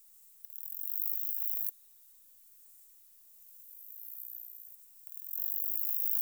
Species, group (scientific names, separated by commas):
Saga hellenica, Orthoptera